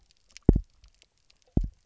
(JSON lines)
{"label": "biophony, double pulse", "recorder": "SoundTrap 300"}